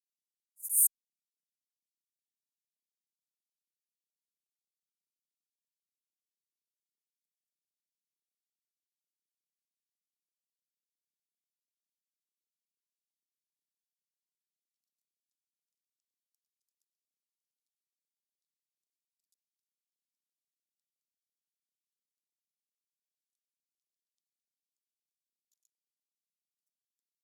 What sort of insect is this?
orthopteran